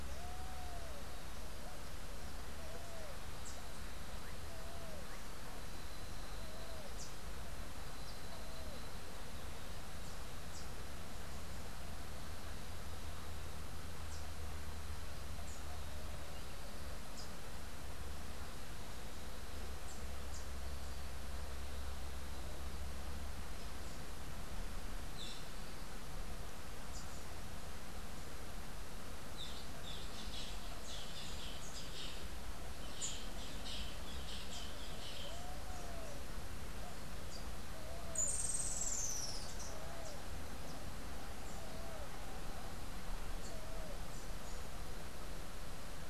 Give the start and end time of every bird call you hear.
[3.25, 3.65] Rufous-tailed Hummingbird (Amazilia tzacatl)
[24.95, 35.45] Boat-billed Flycatcher (Megarynchus pitangua)
[38.05, 39.75] Rufous-tailed Hummingbird (Amazilia tzacatl)

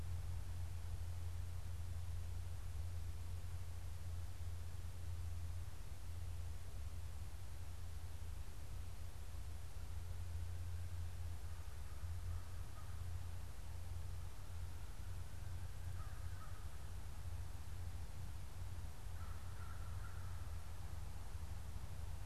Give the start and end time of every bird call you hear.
[11.21, 13.31] American Crow (Corvus brachyrhynchos)
[15.61, 16.91] American Crow (Corvus brachyrhynchos)
[18.91, 20.71] American Crow (Corvus brachyrhynchos)

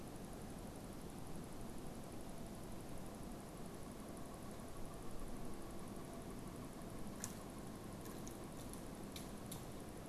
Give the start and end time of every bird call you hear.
[2.40, 9.10] Pileated Woodpecker (Dryocopus pileatus)

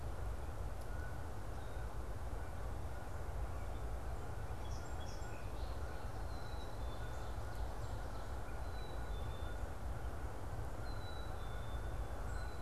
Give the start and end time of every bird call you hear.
[0.90, 12.62] Canada Goose (Branta canadensis)
[4.70, 6.20] Song Sparrow (Melospiza melodia)
[6.30, 7.30] Black-capped Chickadee (Poecile atricapillus)
[7.40, 8.60] Ovenbird (Seiurus aurocapilla)
[8.50, 9.60] Purple Finch (Haemorhous purpureus)
[10.70, 12.62] Black-capped Chickadee (Poecile atricapillus)
[12.20, 12.50] unidentified bird

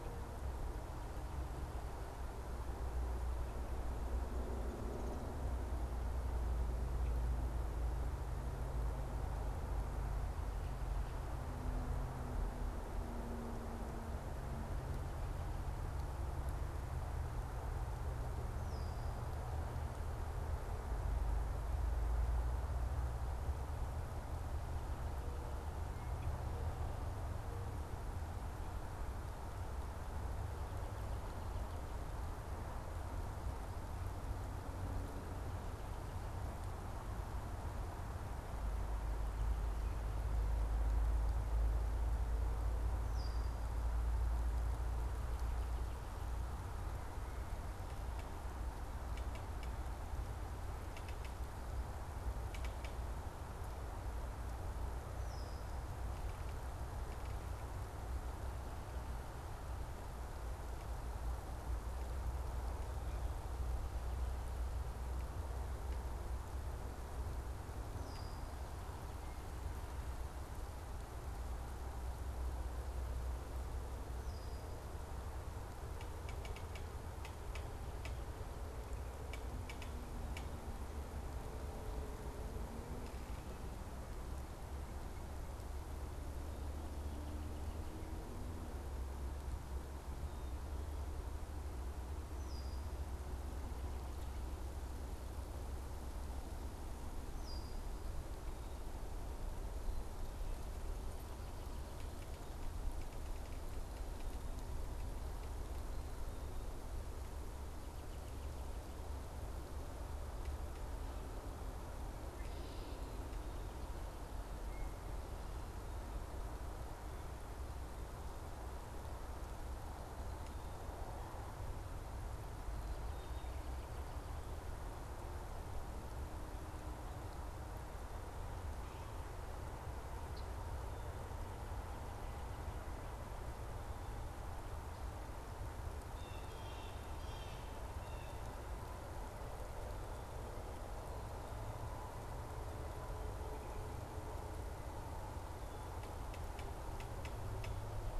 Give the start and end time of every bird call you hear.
[18.60, 19.10] Red-winged Blackbird (Agelaius phoeniceus)
[42.90, 43.60] Red-winged Blackbird (Agelaius phoeniceus)
[55.10, 55.70] Red-winged Blackbird (Agelaius phoeniceus)
[68.00, 68.60] Red-winged Blackbird (Agelaius phoeniceus)
[74.20, 74.90] Red-winged Blackbird (Agelaius phoeniceus)
[92.40, 92.80] Red-winged Blackbird (Agelaius phoeniceus)
[97.30, 97.80] Red-winged Blackbird (Agelaius phoeniceus)
[135.90, 138.80] Blue Jay (Cyanocitta cristata)

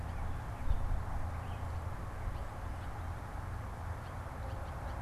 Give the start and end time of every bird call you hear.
[0.00, 5.01] Blue Jay (Cyanocitta cristata)

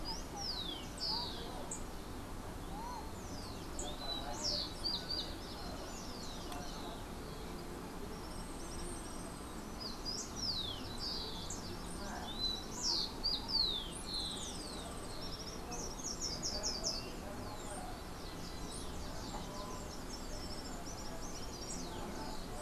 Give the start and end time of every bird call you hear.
[0.00, 15.64] Rufous-collared Sparrow (Zonotrichia capensis)
[8.24, 9.74] Yellow-faced Grassquit (Tiaris olivaceus)
[13.94, 15.24] Yellow-faced Grassquit (Tiaris olivaceus)
[15.24, 17.24] Slate-throated Redstart (Myioborus miniatus)
[20.04, 22.04] Common Tody-Flycatcher (Todirostrum cinereum)

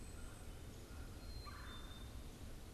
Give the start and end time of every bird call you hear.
[0.00, 2.73] Black-capped Chickadee (Poecile atricapillus)
[0.00, 2.73] Red-bellied Woodpecker (Melanerpes carolinus)

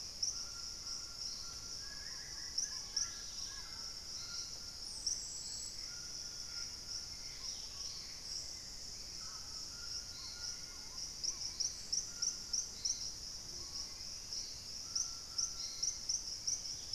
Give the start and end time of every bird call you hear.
[0.00, 0.73] White-crested Spadebill (Platyrinchus platyrhynchos)
[0.00, 16.95] White-throated Toucan (Ramphastos tucanus)
[0.73, 3.93] unidentified bird
[1.73, 3.93] Wing-barred Piprites (Piprites chloris)
[1.83, 14.23] Purple-throated Fruitcrow (Querula purpurata)
[2.73, 8.23] Dusky-capped Greenlet (Pachysylvia hypoxantha)
[4.43, 14.43] Golden-crowned Spadebill (Platyrinchus coronatus)
[5.53, 7.63] Gray Antbird (Cercomacra cinerascens)
[7.83, 16.95] Hauxwell's Thrush (Turdus hauxwelli)
[13.23, 15.23] White-crested Spadebill (Platyrinchus platyrhynchos)
[16.43, 16.95] Dusky-capped Greenlet (Pachysylvia hypoxantha)

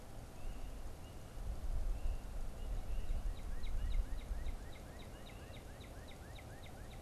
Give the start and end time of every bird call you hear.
[2.09, 7.02] Northern Cardinal (Cardinalis cardinalis)

